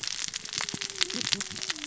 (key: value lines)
label: biophony, cascading saw
recorder: SoundTrap 600 or HydroMoth